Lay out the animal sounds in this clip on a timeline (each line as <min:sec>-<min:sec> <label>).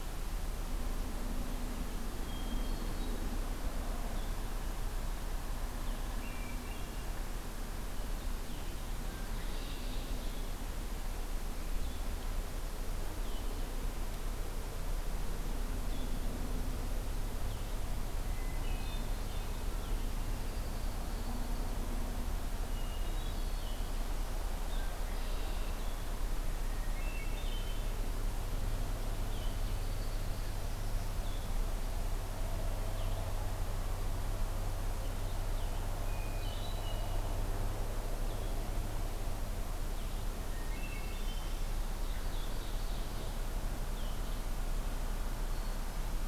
0:02.2-0:03.2 Hermit Thrush (Catharus guttatus)
0:04.0-0:19.5 Blue-headed Vireo (Vireo solitarius)
0:05.9-0:07.1 Hermit Thrush (Catharus guttatus)
0:08.8-0:09.9 Red-winged Blackbird (Agelaius phoeniceus)
0:18.2-0:19.1 Hermit Thrush (Catharus guttatus)
0:20.1-0:21.6 Downy Woodpecker (Dryobates pubescens)
0:22.7-0:23.8 Hermit Thrush (Catharus guttatus)
0:23.5-0:46.3 Blue-headed Vireo (Vireo solitarius)
0:24.6-0:25.9 Red-winged Blackbird (Agelaius phoeniceus)
0:26.7-0:28.0 Hermit Thrush (Catharus guttatus)
0:29.5-0:30.6 Downy Woodpecker (Dryobates pubescens)
0:36.0-0:37.1 Hermit Thrush (Catharus guttatus)
0:40.5-0:41.6 Hermit Thrush (Catharus guttatus)
0:41.7-0:43.4 Ovenbird (Seiurus aurocapilla)